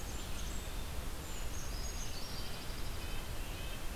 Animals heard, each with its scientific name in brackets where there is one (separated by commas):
Blackburnian Warbler (Setophaga fusca), Dark-eyed Junco (Junco hyemalis), Red-eyed Vireo (Vireo olivaceus), Brown Creeper (Certhia americana), Red-breasted Nuthatch (Sitta canadensis)